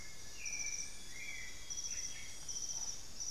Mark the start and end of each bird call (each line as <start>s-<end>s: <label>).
0.0s-1.6s: Elegant Woodcreeper (Xiphorhynchus elegans)
0.0s-3.3s: White-necked Thrush (Turdus albicollis)
0.7s-3.0s: Amazonian Grosbeak (Cyanoloxia rothschildii)